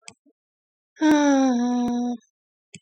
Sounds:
Sigh